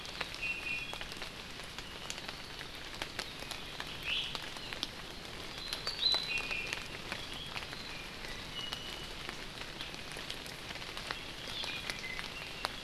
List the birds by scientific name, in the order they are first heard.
Drepanis coccinea